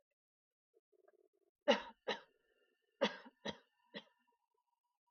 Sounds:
Cough